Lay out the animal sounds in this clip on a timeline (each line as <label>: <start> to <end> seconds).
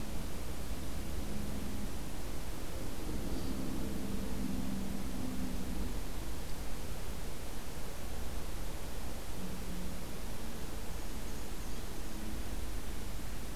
Black-and-white Warbler (Mniotilta varia): 10.7 to 12.3 seconds